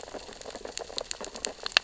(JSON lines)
{"label": "biophony, sea urchins (Echinidae)", "recorder": "SoundTrap 600 or HydroMoth"}